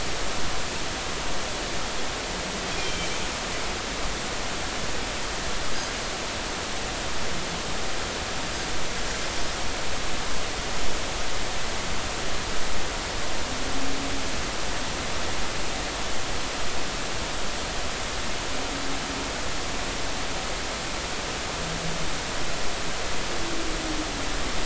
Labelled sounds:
2.7	3.2	Pacific white-sided dolphin, 2.2 to 3.3 kHz

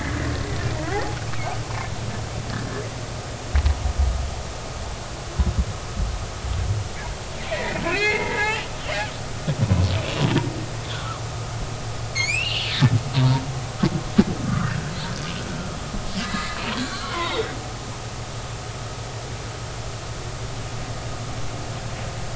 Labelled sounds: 0.9	1.6	humpback whale, 0.80 to 2.7 kHz
7.5	8.7	humpback whale, 1.3 to 3.0 kHz
9.6	9.9	humpback whale, 0.93 to 1.1 kHz
10.9	11.2	humpback whale, 1.1 to 1.6 kHz
12.1	13.4	humpback whale, 0.86 to 5.5 kHz
14.4	14.9	humpback whale, 1.1 to 1.9 kHz
16.2	17.6	humpback whale, 0.86 to 2.2 kHz
18.2	18.5	humpback whale, 3.4 to 3.9 kHz

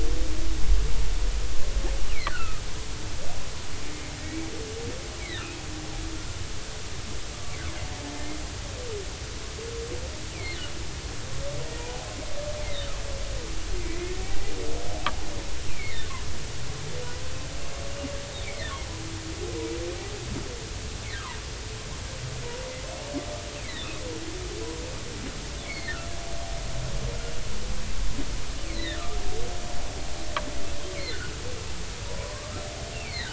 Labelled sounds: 2.1	2.6	humpback whale, 1.2 to 3.0 kHz
3.9	4.5	humpback whale, 2.1 to 2.3 kHz
5.2	6.4	humpback whale, 1.3 to 2.5 kHz
13.9	14.1	humpback whale, 1.9 to 2.2 kHz
15.7	16.0	humpback whale, 2.0 to 2.8 kHz
18.4	18.7	humpback whale, 1.7 to 2.4 kHz
25.6	26.0	humpback whale, 2.0 to 4.4 kHz
28.6	29.2	humpback whale, 1.2 to 4.3 kHz
32.1	33.3	humpback whale, 0.93 to 4.5 kHz

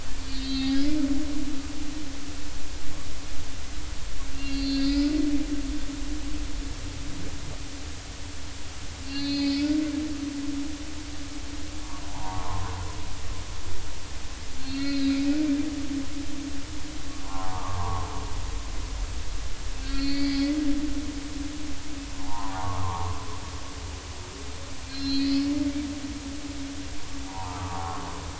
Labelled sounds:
0.3	0.8	humpback whale, 3.1 to 4.6 kHz
4.3	5.1	humpback whale, 1.9 to 4.9 kHz
9.0	9.7	humpback whale, 2.2 to 4.9 kHz
12.1	12.8	humpback whale, 0.80 to 1.2 kHz
14.6	15.2	humpback whale, 1.3 to 4.8 kHz
17.2	18.1	humpback whale, 0.80 to 1.4 kHz
19.8	20.5	humpback whale, 1.9 to 4.7 kHz
22.2	23.2	humpback whale, 0.80 to 1.3 kHz
24.9	25.4	humpback whale, 1.6 to 4.5 kHz
27.3	28.0	humpback whale, 0.80 to 1.4 kHz

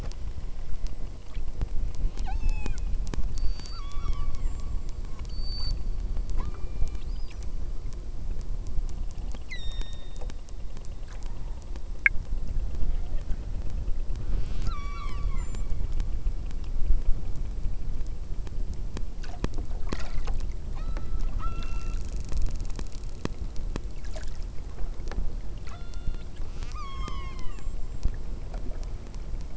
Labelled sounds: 2.2	3.0	killer whale, southern Alaska resident, 0.54 to 8.0 kHz
3.3	4.7	killer whale, southern Alaska resident, 0.63 to 8.0 kHz
5.3	5.8	killer whale, southern Alaska resident, 4.0 to 8.0 kHz
6.4	7.1	killer whale, southern Alaska resident, 0.73 to 8.0 kHz
9.5	10.4	killer whale, southern Alaska resident, 1.6 to 8.0 kHz
14.2	15.7	killer whale, southern Alaska resident, 0.34 to 8.0 kHz
20.7	22.0	killer whale, southern Alaska resident, 0.65 to 5.7 kHz
25.7	28.3	killer whale, southern Alaska resident, 0.42 to 8.0 kHz

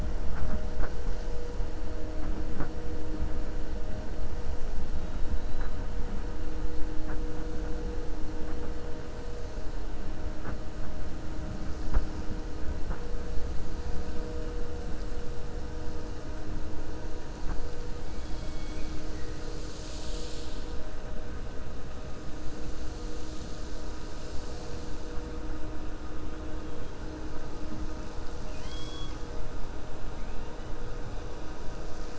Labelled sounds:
18.1	19.4	killer whale, 1.9 to 4.2 kHz

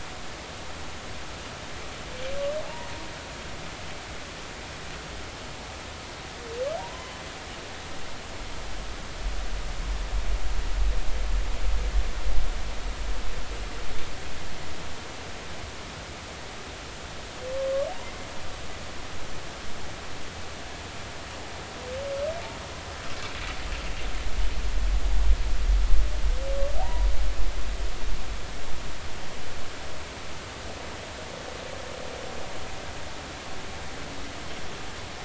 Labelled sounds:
2.6	2.9	humpback whale, 0.83 to 0.99 kHz
6.8	7.2	humpback whale, 0.90 to 3.1 kHz
26.8	27.1	humpback whale, 0.80 to 1.0 kHz

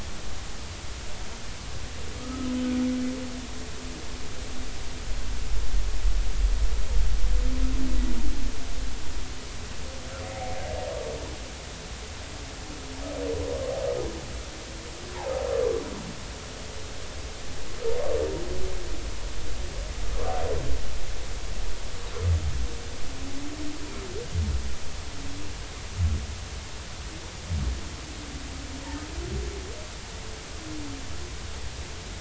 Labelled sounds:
2.2	2.5	humpback whale, 1.2 to 1.3 kHz
10.3	10.6	humpback whale, 1.9 to 2.2 kHz

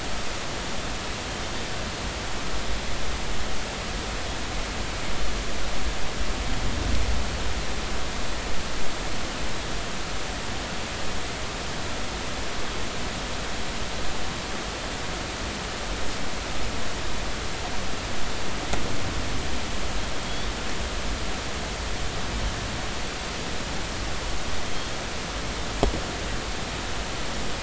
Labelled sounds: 20.2	20.5	Pacific white-sided dolphin, 3.2 to 3.7 kHz

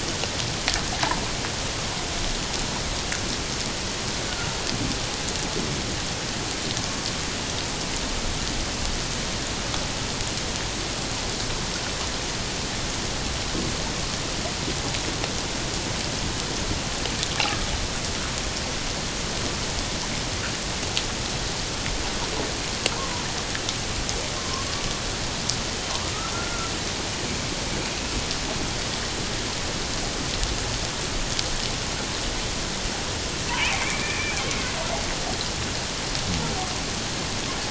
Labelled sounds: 17.4	17.7	water noise, 1.1 to 1.4 kHz
24.4	24.7	killer whale, 1.0 to 1.2 kHz
26.3	27.5	killer whale, 1.3 to 2.4 kHz
27.9	28.1	killer whale, 2.4 to 2.8 kHz
33.6	34.8	killer whale, 2.0 to 2.8 kHz

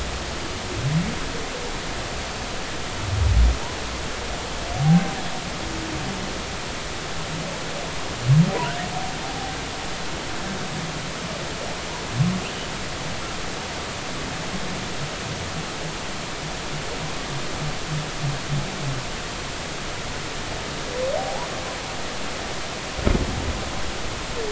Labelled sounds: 4.8	5.2	humpback whale, 0.80 to 0.83 kHz
21.2	21.5	humpback whale, 0.80 to 1.1 kHz

